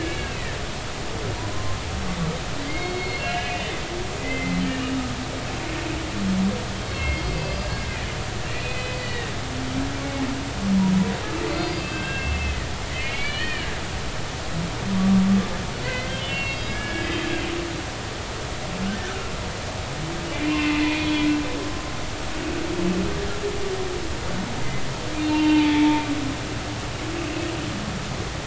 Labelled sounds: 0.0	0.5	humpback whale, 2.1 to 2.7 kHz
1.4	1.8	humpback whale, 0.90 to 1.1 kHz
2.6	3.7	humpback whale, 1.9 to 4.4 kHz
4.2	5.0	humpback whale, 2.0 to 2.9 kHz
6.8	7.8	humpback whale, 2.1 to 5.0 kHz
8.5	9.3	humpback whale, 1.8 to 4.6 kHz
11.5	13.7	humpback whale, 1.5 to 4.8 kHz
15.0	17.3	humpback whale, 1.0 to 4.4 kHz
20.3	21.3	humpback whale, 2.0 to 3.4 kHz
25.2	26.0	humpback whale, 0.83 to 3.1 kHz

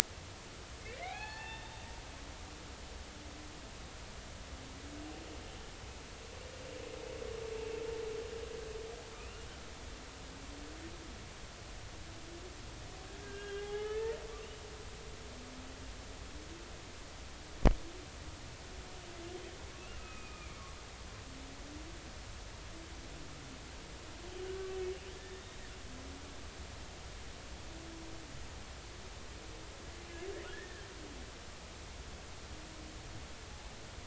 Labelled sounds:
0.8	1.9	humpback whale, 0.80 to 4.5 kHz
13.2	14.2	humpback whale, 0.80 to 3.3 kHz
20.0	20.7	humpback whale, 1.2 to 2.6 kHz
24.5	25.4	humpback whale, 1.1 to 1.9 kHz
30.5	30.8	humpback whale, 1.6 to 1.9 kHz

